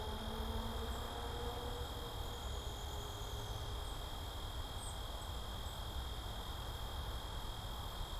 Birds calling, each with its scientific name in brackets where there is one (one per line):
Downy Woodpecker (Dryobates pubescens)
Cedar Waxwing (Bombycilla cedrorum)